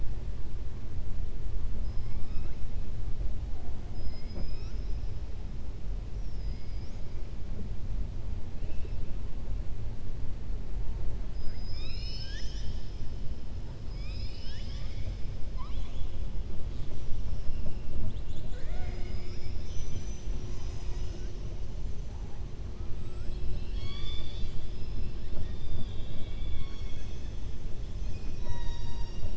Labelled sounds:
2.0	2.6	killer whale, southern resident, 1.1 to 5.5 kHz
6.1	7.1	killer whale, southern resident, 2.0 to 6.8 kHz
15.4	16.1	killer whale, southern resident, 0.82 to 4.1 kHz

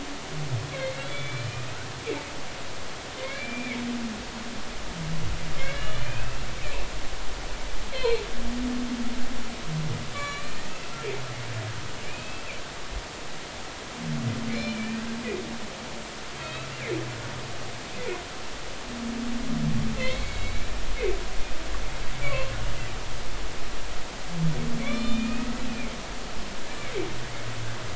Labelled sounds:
0.7	1.5	humpback whale, 2.0 to 3.5 kHz
3.2	3.8	humpback whale, 2.0 to 2.5 kHz
5.6	6.5	humpback whale, 1.5 to 3.2 kHz
7.9	8.2	humpback whale, 4.1 to 4.4 kHz
10.1	10.9	humpback whale, 1.1 to 7.1 kHz
12.0	12.4	humpback whale, 2.2 to 2.7 kHz
14.5	15.1	humpback whale, 1.7 to 2.5 kHz
16.4	16.7	humpback whale, 2.5 to 4.0 kHz
20.0	20.8	humpback whale, 1.9 to 4.0 kHz
22.2	22.5	humpback whale, 0.99 to 1.2 kHz
24.8	26.0	humpback whale, 2.0 to 4.4 kHz

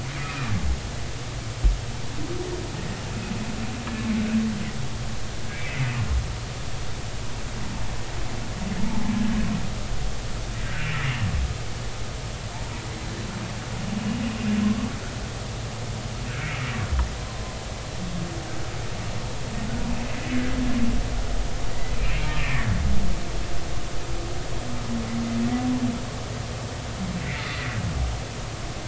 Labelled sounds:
0.2	0.5	humpback whale, 1.2 to 2.6 kHz
5.5	5.9	humpback whale, 2.0 to 2.4 kHz
8.9	9.1	humpback whale, 0.80 to 0.96 kHz
10.6	10.9	humpback whale, 1.5 to 1.7 kHz
16.4	16.7	humpback whale, 2.1 to 2.5 kHz
22.0	22.7	humpback whale, 1.1 to 2.7 kHz
27.2	27.8	humpback whale, 1.9 to 2.5 kHz

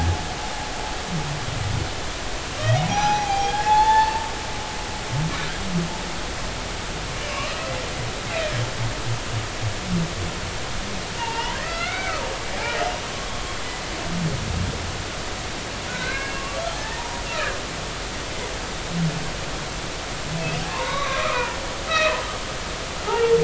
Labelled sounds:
0.2	0.7	humpback whale, 5.0 to 5.2 kHz
2.9	4.3	humpback whale, 0.80 to 5.9 kHz
7.2	7.7	humpback whale, 1.0 to 3.0 kHz
11.2	12.1	humpback whale, 0.83 to 3.1 kHz
13.1	13.5	humpback whale, 1.0 to 1.2 kHz
15.9	17.2	humpback whale, 0.80 to 2.2 kHz
20.7	21.6	humpback whale, 0.83 to 4.0 kHz
21.9	22.2	humpback whale, 1.2 to 2.7 kHz
23.1	23.3	humpback whale, 0.80 to 1.5 kHz

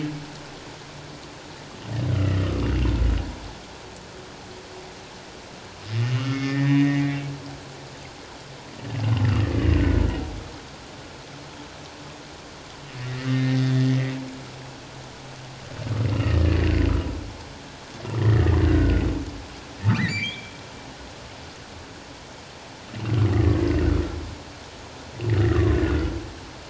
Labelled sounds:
2.1	2.7	humpback whale, 1.1 to 1.5 kHz
6.0	7.2	humpback whale, 1.2 to 3.0 kHz
9.6	9.8	humpback whale, 2.7 to 2.9 kHz
13.0	14.1	humpback whale, 1.8 to 2.2 kHz
16.1	16.6	humpback whale, 1.7 to 3.0 kHz
18.2	19.0	humpback whale, 1.3 to 2.0 kHz
19.9	20.5	humpback whale, 1.9 to 4.8 kHz
25.5	26.1	humpback whale, 1.0 to 1.5 kHz

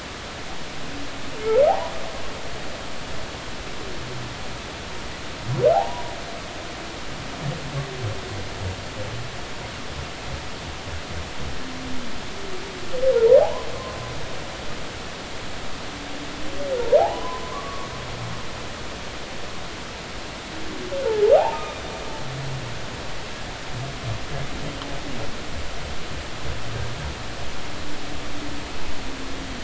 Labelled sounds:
1.7	1.9	humpback whale, 0.80 to 1.1 kHz
5.7	6.0	humpback whale, 0.80 to 1.0 kHz
13.4	13.7	humpback whale, 0.80 to 1.1 kHz
17.0	17.9	humpback whale, 0.80 to 1.2 kHz
21.4	21.8	humpback whale, 0.80 to 2.6 kHz

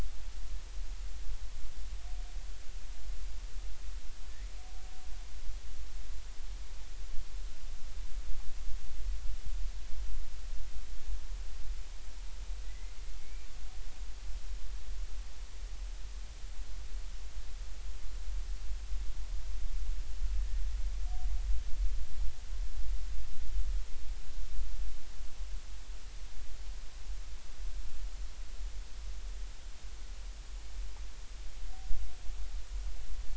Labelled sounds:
4.3	4.5	killer whale, Bigg's (transient), 1.7 to 2.2 kHz
12.6	13.5	killer whale, Bigg's (transient), 1.9 to 2.4 kHz

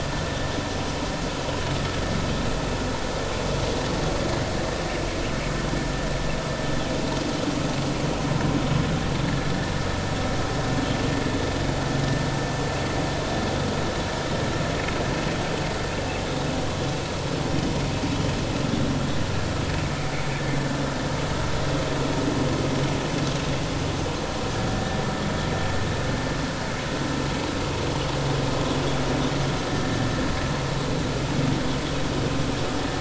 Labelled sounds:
9.2	9.5	vessel noise, 1.6 to 1.8 kHz

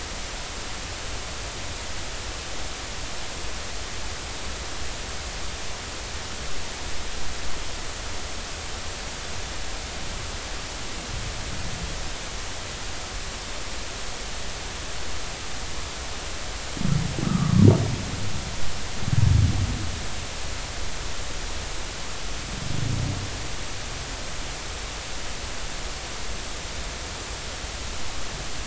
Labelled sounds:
17.2	17.6	humpback whale, 1.1 to 1.4 kHz

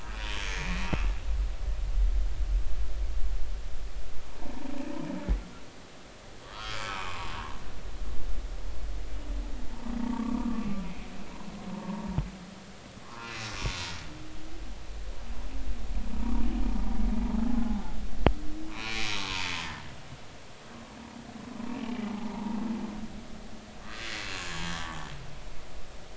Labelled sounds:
0.2	0.8	humpback whale, 2.1 to 3.2 kHz
6.4	7.3	humpback whale, 0.83 to 4.8 kHz
9.7	10.7	humpback whale, 0.86 to 1.3 kHz
11.7	12.0	humpback whale, 0.86 to 1.1 kHz
13.0	13.5	humpback whale, 0.90 to 2.8 kHz
18.7	19.1	humpback whale, 2.2 to 2.7 kHz
22.1	22.4	humpback whale, 0.80 to 1.0 kHz
23.8	24.8	humpback whale, 1.6 to 3.3 kHz
25.7	26.0	humpback whale, 1.1 to 1.2 kHz

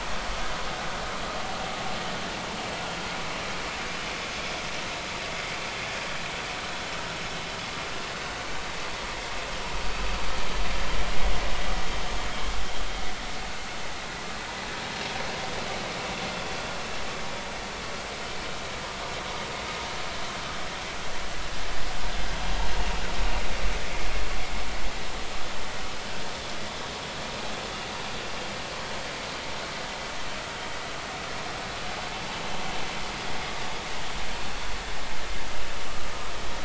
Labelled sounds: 5.3	5.5	vessel noise, 2.0 to 2.1 kHz

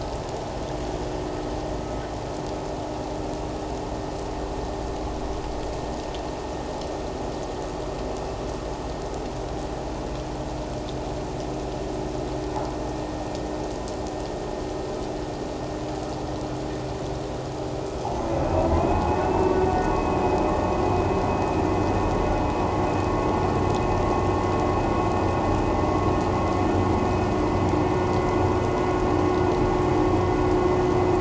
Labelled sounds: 18.8	20.4	vessel noise, 2.4 to 2.7 kHz

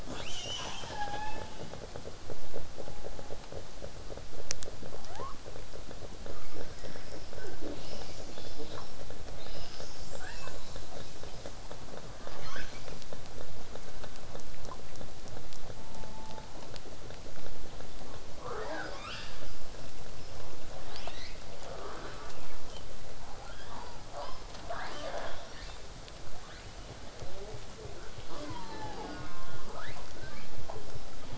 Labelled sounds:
0.1	1.7	killer whale, southern resident, 0.65 to 8.0 kHz
1.7	5.0	vessel noise, 0 to 8.0 kHz
5.0	5.4	killer whale, southern resident, 0.43 to 3.4 kHz
6.3	9.0	killer whale, southern resident, 0.22 to 7.3 kHz
8.6	8.8	killer whale, southern resident, J pod, call S05, 0.22 to 1.9 kHz
9.4	11.5	killer whale, southern resident, 0.33 to 8.0 kHz
12.2	13.0	killer whale, southern resident, 0.33 to 7.2 kHz
15.7	16.5	killer whale, southern resident, 0.25 to 1.2 kHz
18.4	19.5	killer whale, southern resident, 0.29 to 8.0 kHz
20.9	21.4	killer whale, southern resident, 0.43 to 8.0 kHz
23.4	25.8	killer whale, southern resident, 0.33 to 8.0 kHz
26.3	26.9	killer whale, southern resident, 0.54 to 5.7 kHz
27.2	28.0	killer whale, southern resident, J pod, call S05, 0.18 to 1.4 kHz
28.3	28.5	killer whale, southern resident, J pod, call S05, 0.22 to 8.0 kHz
28.5	29.3	killer whale, southern resident, 0.25 to 5.3 kHz
29.0	29.7	killer whale, southern resident, J pod, call S04, 0.80 to 1.9 kHz
29.7	30.6	killer whale, southern resident, 0.22 to 5.6 kHz

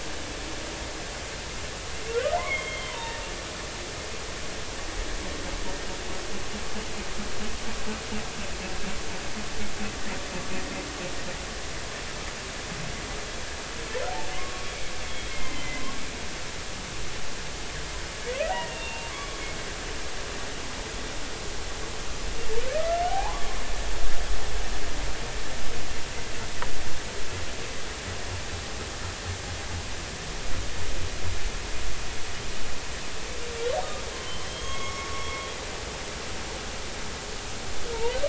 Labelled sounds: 2.4	3.2	humpback whale, 0.86 to 3.4 kHz
14.3	15.8	humpback whale, 1.0 to 3.5 kHz
18.5	19.4	humpback whale, 1.0 to 2.8 kHz
23.1	23.4	humpback whale, 0.80 to 1.2 kHz
34.1	35.3	humpback whale, 0.93 to 3.4 kHz

